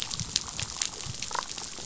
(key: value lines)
label: biophony, damselfish
recorder: SoundTrap 500